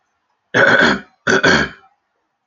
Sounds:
Throat clearing